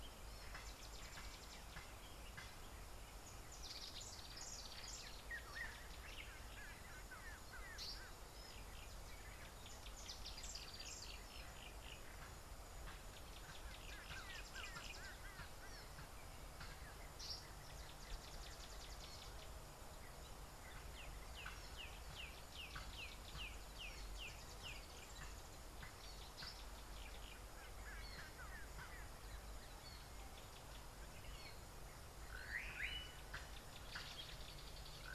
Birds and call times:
Yellow-bellied Greenbul (Chlorocichla flaviventris): 7.2s, 14.7s
Black-backed Puffback (Dryoscopus cubla): 23.4s

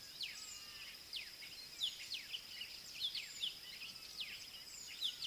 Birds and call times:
Scarlet-chested Sunbird (Chalcomitra senegalensis): 1.9s

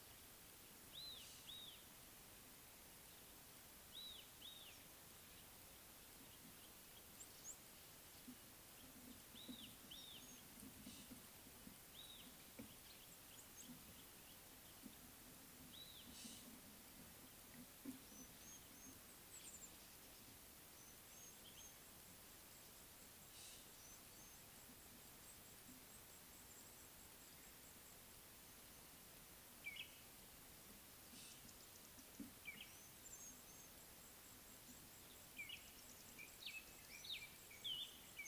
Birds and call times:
Red-backed Scrub-Robin (Cercotrichas leucophrys): 1.1s, 9.6s, 12.1s
African Gray Flycatcher (Bradornis microrhynchus): 7.3s, 18.5s, 21.2s, 33.3s
Spotted Morning-Thrush (Cichladusa guttata): 29.7s, 37.2s

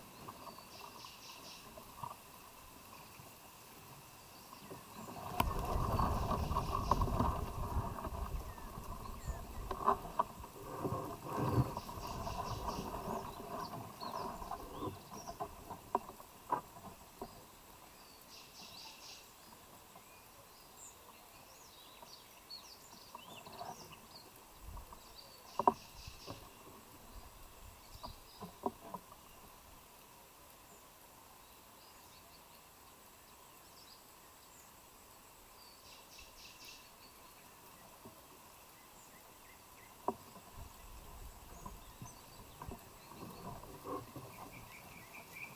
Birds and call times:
Cinnamon Bracken-Warbler (Bradypterus cinnamomeus): 36.1s

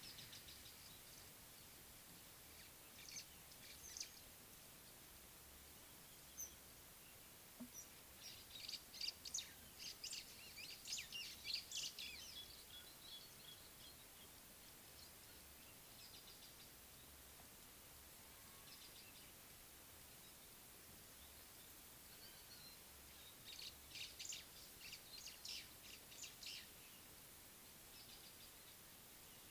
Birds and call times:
White-browed Sparrow-Weaver (Plocepasser mahali): 4.0s, 8.7s, 11.7s, 23.6s
Nubian Woodpecker (Campethera nubica): 12.7s

